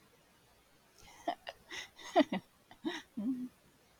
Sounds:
Laughter